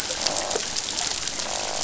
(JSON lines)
{"label": "biophony, croak", "recorder": "SoundTrap 500"}